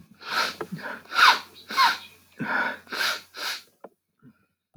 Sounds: Sniff